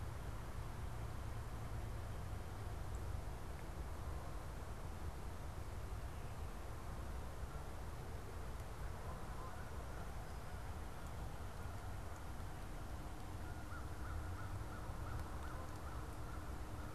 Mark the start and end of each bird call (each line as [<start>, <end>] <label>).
[8.49, 10.49] Canada Goose (Branta canadensis)
[13.49, 16.89] American Crow (Corvus brachyrhynchos)